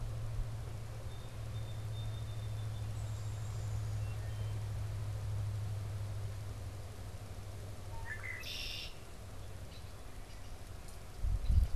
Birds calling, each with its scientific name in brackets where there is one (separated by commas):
Downy Woodpecker (Dryobates pubescens), Wood Thrush (Hylocichla mustelina), Song Sparrow (Melospiza melodia), Red-winged Blackbird (Agelaius phoeniceus)